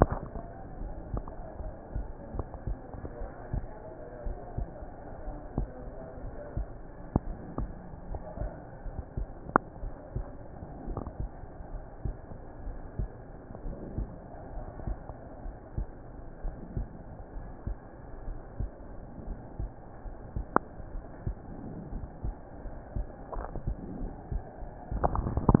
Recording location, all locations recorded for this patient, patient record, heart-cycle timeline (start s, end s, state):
pulmonary valve (PV)
aortic valve (AV)+pulmonary valve (PV)+tricuspid valve (TV)+mitral valve (MV)
#Age: Child
#Sex: Female
#Height: 138.0 cm
#Weight: 33.5 kg
#Pregnancy status: False
#Murmur: Unknown
#Murmur locations: nan
#Most audible location: nan
#Systolic murmur timing: nan
#Systolic murmur shape: nan
#Systolic murmur grading: nan
#Systolic murmur pitch: nan
#Systolic murmur quality: nan
#Diastolic murmur timing: nan
#Diastolic murmur shape: nan
#Diastolic murmur grading: nan
#Diastolic murmur pitch: nan
#Diastolic murmur quality: nan
#Outcome: Normal
#Campaign: 2015 screening campaign
0.00	3.68	unannotated
3.68	4.22	diastole
4.22	4.38	S1
4.38	4.54	systole
4.54	4.68	S2
4.68	5.24	diastole
5.24	5.36	S1
5.36	5.56	systole
5.56	5.70	S2
5.70	6.21	diastole
6.21	6.34	S1
6.34	6.54	systole
6.54	6.68	S2
6.68	7.22	diastole
7.22	7.35	S1
7.35	7.54	systole
7.54	7.72	S2
7.72	8.08	diastole
8.08	8.22	S1
8.22	8.40	systole
8.40	8.52	S2
8.52	8.81	diastole
8.81	8.96	S1
8.96	9.14	systole
9.14	9.30	S2
9.30	9.78	diastole
9.78	9.94	S1
9.94	10.11	systole
10.11	10.30	S2
10.30	10.84	diastole
10.84	11.02	S1
11.02	11.15	systole
11.15	11.28	S2
11.28	11.69	diastole
11.69	11.84	S1
11.84	12.02	systole
12.02	12.16	S2
12.16	12.62	diastole
12.62	12.80	S1
12.80	12.98	systole
12.98	13.10	S2
13.10	13.62	diastole
13.62	13.76	S1
13.76	13.96	systole
13.96	14.08	S2
14.08	14.54	diastole
14.54	14.66	S1
14.66	14.84	systole
14.84	14.98	S2
14.98	15.44	diastole
15.44	15.56	S1
15.56	15.74	systole
15.74	15.88	S2
15.88	16.42	diastole
16.42	16.56	S1
16.56	16.74	systole
16.74	16.88	S2
16.88	17.36	diastole
17.36	17.48	S1
17.48	17.64	systole
17.64	17.78	S2
17.78	18.26	diastole
18.26	18.38	S1
18.38	18.56	systole
18.56	18.70	S2
18.70	19.24	diastole
19.24	19.38	S1
19.38	19.56	systole
19.56	19.72	S2
19.72	20.02	diastole
20.02	20.16	S1
20.16	20.34	systole
20.34	20.46	S2
20.46	20.92	diastole
20.92	21.04	S1
21.04	21.24	systole
21.24	21.38	S2
21.38	21.90	diastole
21.90	22.08	S1
22.08	22.24	systole
22.24	22.36	S2
22.36	22.94	diastole
22.94	25.60	unannotated